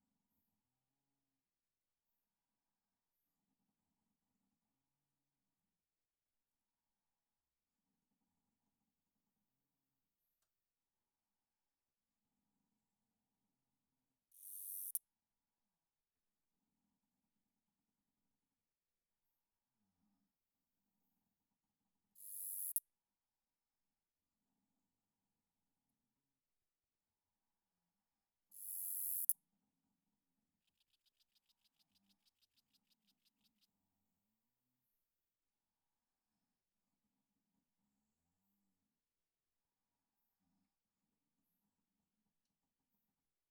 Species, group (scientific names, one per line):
Acrometopa servillea
Orthoptera